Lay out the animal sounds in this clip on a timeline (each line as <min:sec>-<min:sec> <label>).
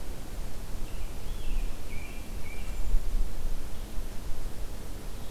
0:00.8-0:02.8 American Robin (Turdus migratorius)
0:02.7-0:03.2 Hermit Thrush (Catharus guttatus)